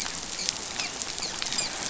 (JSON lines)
{"label": "biophony, dolphin", "recorder": "SoundTrap 500"}